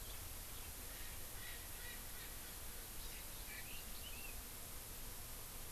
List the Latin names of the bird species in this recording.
Pternistis erckelii, Chlorodrepanis virens, Leiothrix lutea